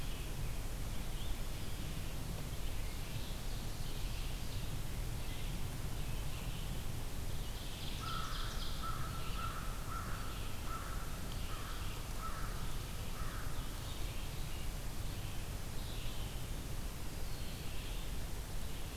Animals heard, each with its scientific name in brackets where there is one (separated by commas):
Red-eyed Vireo (Vireo olivaceus), Ovenbird (Seiurus aurocapilla), American Crow (Corvus brachyrhynchos)